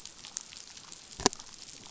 {"label": "biophony", "recorder": "SoundTrap 500"}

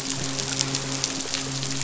{"label": "biophony, midshipman", "recorder": "SoundTrap 500"}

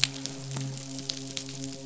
{"label": "biophony, midshipman", "recorder": "SoundTrap 500"}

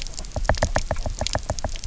{"label": "biophony, knock", "recorder": "SoundTrap 300"}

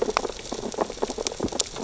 {"label": "biophony, sea urchins (Echinidae)", "recorder": "SoundTrap 600 or HydroMoth"}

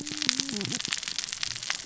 {"label": "biophony, cascading saw", "recorder": "SoundTrap 600 or HydroMoth"}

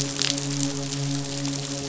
{"label": "biophony, midshipman", "recorder": "SoundTrap 500"}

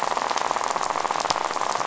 {"label": "biophony, rattle", "recorder": "SoundTrap 500"}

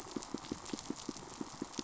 {"label": "biophony, pulse", "recorder": "SoundTrap 500"}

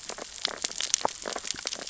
{"label": "biophony, sea urchins (Echinidae)", "recorder": "SoundTrap 600 or HydroMoth"}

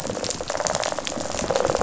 {"label": "biophony, rattle response", "recorder": "SoundTrap 500"}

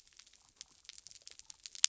{"label": "biophony", "recorder": "SoundTrap 300"}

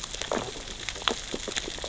{"label": "biophony, sea urchins (Echinidae)", "recorder": "SoundTrap 600 or HydroMoth"}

